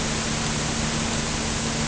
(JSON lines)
{"label": "anthrophony, boat engine", "recorder": "HydroMoth"}